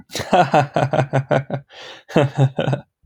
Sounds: Laughter